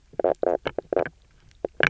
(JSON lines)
{"label": "biophony, knock croak", "recorder": "SoundTrap 300"}